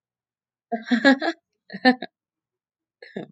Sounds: Laughter